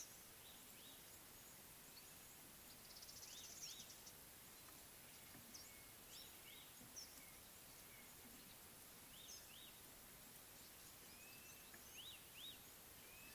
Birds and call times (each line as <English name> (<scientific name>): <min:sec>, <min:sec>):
Little Weaver (Ploceus luteolus): 0:03.0
Red-backed Scrub-Robin (Cercotrichas leucophrys): 0:03.3, 0:09.2, 0:12.1
Blue-naped Mousebird (Urocolius macrourus): 0:11.4